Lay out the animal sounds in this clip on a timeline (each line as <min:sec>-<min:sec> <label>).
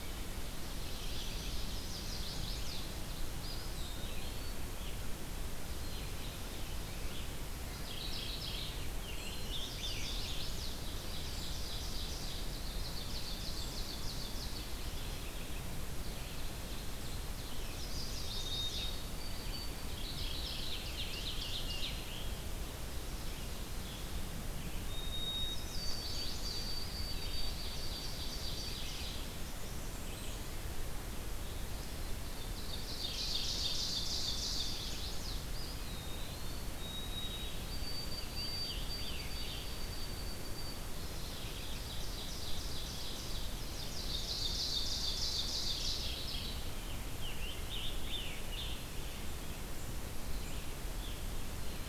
0:00.3-0:03.0 Chestnut-sided Warbler (Setophaga pensylvanica)
0:00.4-0:02.8 Ovenbird (Seiurus aurocapilla)
0:01.0-0:51.9 Red-eyed Vireo (Vireo olivaceus)
0:03.3-0:04.7 Eastern Wood-Pewee (Contopus virens)
0:05.8-0:06.6 Black-capped Chickadee (Poecile atricapillus)
0:05.8-0:07.4 Scarlet Tanager (Piranga olivacea)
0:07.6-0:09.2 Mourning Warbler (Geothlypis philadelphia)
0:08.6-0:10.1 Scarlet Tanager (Piranga olivacea)
0:09.5-0:11.1 Chestnut-sided Warbler (Setophaga pensylvanica)
0:10.8-0:14.7 Ovenbird (Seiurus aurocapilla)
0:14.6-0:15.7 Mourning Warbler (Geothlypis philadelphia)
0:15.9-0:17.8 Ovenbird (Seiurus aurocapilla)
0:17.6-0:18.9 Chestnut-sided Warbler (Setophaga pensylvanica)
0:18.3-0:20.2 White-throated Sparrow (Zonotrichia albicollis)
0:19.7-0:21.3 Mourning Warbler (Geothlypis philadelphia)
0:20.2-0:22.0 Ovenbird (Seiurus aurocapilla)
0:20.4-0:22.5 Scarlet Tanager (Piranga olivacea)
0:24.9-0:29.2 White-throated Sparrow (Zonotrichia albicollis)
0:25.4-0:26.8 Chestnut-sided Warbler (Setophaga pensylvanica)
0:26.6-0:28.1 Eastern Wood-Pewee (Contopus virens)
0:27.0-0:29.4 Ovenbird (Seiurus aurocapilla)
0:29.3-0:30.5 Blackburnian Warbler (Setophaga fusca)
0:32.3-0:35.0 Ovenbird (Seiurus aurocapilla)
0:34.4-0:35.5 Chestnut-sided Warbler (Setophaga pensylvanica)
0:35.3-0:37.1 Eastern Wood-Pewee (Contopus virens)
0:36.6-0:41.3 White-throated Sparrow (Zonotrichia albicollis)
0:38.0-0:39.9 Scarlet Tanager (Piranga olivacea)
0:40.8-0:41.7 Chestnut-sided Warbler (Setophaga pensylvanica)
0:41.6-0:46.2 Ovenbird (Seiurus aurocapilla)
0:45.7-0:46.8 Mourning Warbler (Geothlypis philadelphia)
0:46.7-0:48.9 Scarlet Tanager (Piranga olivacea)